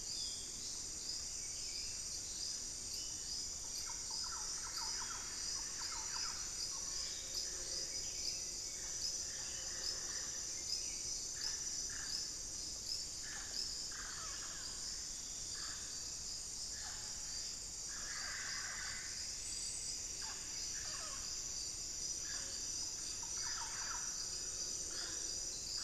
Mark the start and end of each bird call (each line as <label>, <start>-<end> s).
Buff-throated Saltator (Saltator maximus), 0.0-25.8 s
Thrush-like Wren (Campylorhynchus turdinus), 3.6-6.8 s
Mealy Parrot (Amazona farinosa), 6.6-25.8 s
Solitary Black Cacique (Cacicus solitarius), 17.9-19.3 s